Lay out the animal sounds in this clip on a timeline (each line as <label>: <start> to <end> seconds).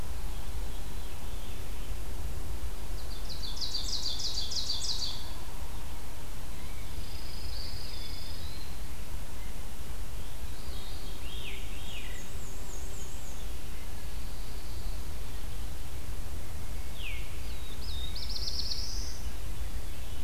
Veery (Catharus fuscescens): 0.2 to 2.0 seconds
Ovenbird (Seiurus aurocapilla): 2.7 to 5.5 seconds
Rose-breasted Grosbeak (Pheucticus ludovicianus): 6.5 to 9.0 seconds
Pine Warbler (Setophaga pinus): 6.6 to 8.7 seconds
Eastern Wood-Pewee (Contopus virens): 7.4 to 9.0 seconds
Veery (Catharus fuscescens): 10.3 to 12.4 seconds
Black-and-white Warbler (Mniotilta varia): 11.1 to 13.7 seconds
Pine Warbler (Setophaga pinus): 13.9 to 15.1 seconds
Veery (Catharus fuscescens): 16.8 to 17.4 seconds
Black-throated Blue Warbler (Setophaga caerulescens): 17.2 to 19.5 seconds